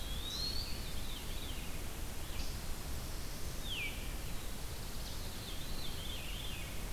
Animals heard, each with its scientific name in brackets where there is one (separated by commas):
Eastern Wood-Pewee (Contopus virens), Veery (Catharus fuscescens), Black-throated Blue Warbler (Setophaga caerulescens), Red-eyed Vireo (Vireo olivaceus)